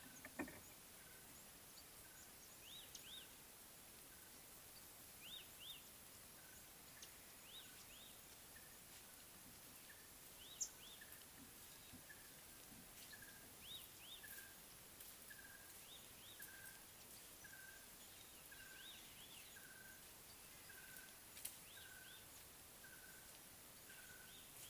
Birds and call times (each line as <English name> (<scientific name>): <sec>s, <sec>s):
Red-backed Scrub-Robin (Cercotrichas leucophrys): 2.7s, 5.3s, 7.6s, 13.7s